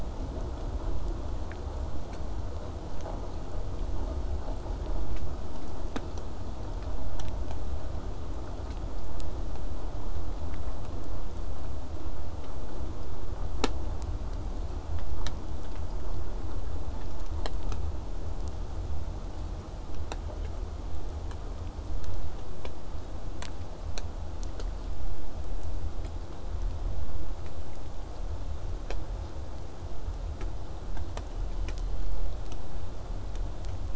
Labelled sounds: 31.2	32.3	killer whale, southern resident, J pod, 1.8 to 4.7 kHz

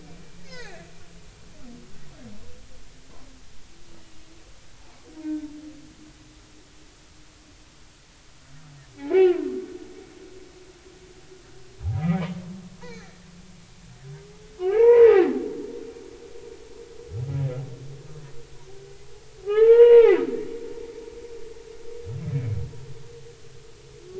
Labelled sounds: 0.4	0.9	humpback whale, 0.80 to 5.0 kHz
5.2	5.5	humpback whale, 1.5 to 1.6 kHz
9.0	9.3	humpback whale, 0.80 to 2.4 kHz
11.8	12.3	humpback whale, 0.80 to 2.5 kHz
12.8	13.2	humpback whale, 1.6 to 4.5 kHz
14.6	15.3	humpback whale, 0.80 to 2.5 kHz
19.4	20.2	humpback whale, 0.80 to 3.0 kHz

